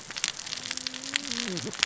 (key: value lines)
label: biophony, cascading saw
recorder: SoundTrap 600 or HydroMoth